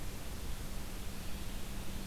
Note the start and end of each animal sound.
0.0s-2.1s: Red-eyed Vireo (Vireo olivaceus)

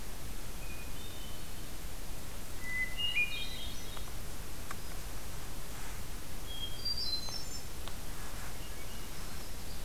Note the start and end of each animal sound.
0.6s-1.7s: Hermit Thrush (Catharus guttatus)
2.6s-4.1s: Hermit Thrush (Catharus guttatus)
6.3s-9.0s: Hermit Thrush (Catharus guttatus)

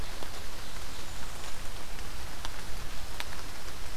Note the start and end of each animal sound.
0.1s-1.9s: Blackburnian Warbler (Setophaga fusca)

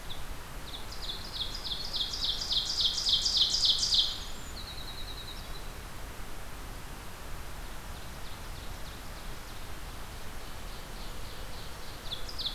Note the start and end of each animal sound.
0.0s-4.3s: Ovenbird (Seiurus aurocapilla)
3.8s-5.8s: Winter Wren (Troglodytes hiemalis)
7.7s-12.5s: Ovenbird (Seiurus aurocapilla)

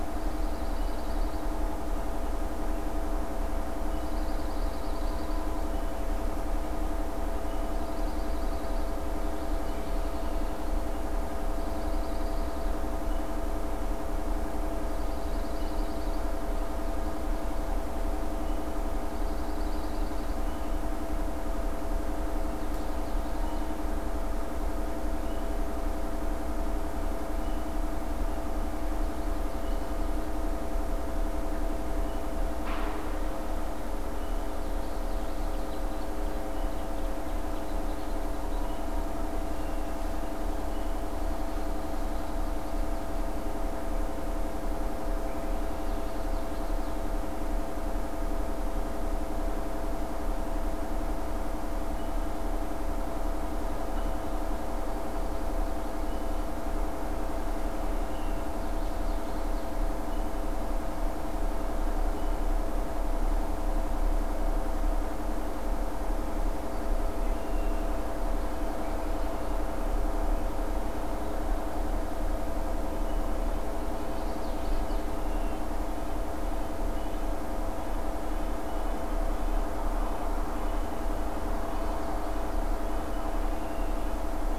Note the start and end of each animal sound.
0.0s-1.8s: Pine Warbler (Setophaga pinus)
3.7s-5.5s: Pine Warbler (Setophaga pinus)
7.5s-9.2s: Pine Warbler (Setophaga pinus)
8.2s-10.5s: Common Yellowthroat (Geothlypis trichas)
11.1s-12.8s: Pine Warbler (Setophaga pinus)
14.6s-16.4s: Pine Warbler (Setophaga pinus)
18.8s-20.6s: Pine Warbler (Setophaga pinus)
21.8s-23.9s: Common Yellowthroat (Geothlypis trichas)
28.7s-30.4s: Common Yellowthroat (Geothlypis trichas)
34.1s-36.0s: Common Yellowthroat (Geothlypis trichas)
41.9s-43.8s: Common Yellowthroat (Geothlypis trichas)
45.3s-47.2s: Common Yellowthroat (Geothlypis trichas)
58.1s-60.3s: Common Yellowthroat (Geothlypis trichas)
66.3s-68.2s: Red-winged Blackbird (Agelaius phoeniceus)
73.2s-84.6s: Red-breasted Nuthatch (Sitta canadensis)
73.6s-75.4s: Common Yellowthroat (Geothlypis trichas)
81.2s-82.8s: Common Yellowthroat (Geothlypis trichas)
82.5s-84.3s: Red-winged Blackbird (Agelaius phoeniceus)

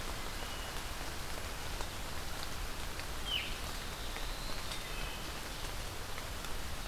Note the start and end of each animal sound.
0.3s-0.8s: Wood Thrush (Hylocichla mustelina)
3.2s-3.6s: Veery (Catharus fuscescens)
3.3s-4.7s: Black-throated Blue Warbler (Setophaga caerulescens)
4.5s-5.3s: Wood Thrush (Hylocichla mustelina)

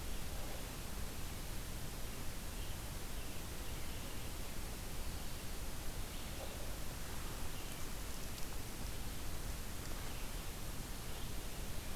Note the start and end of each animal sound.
0.0s-12.0s: Red-eyed Vireo (Vireo olivaceus)

